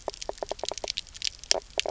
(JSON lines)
{"label": "biophony, knock croak", "recorder": "SoundTrap 300"}